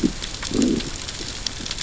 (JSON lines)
{"label": "biophony, growl", "recorder": "SoundTrap 600 or HydroMoth"}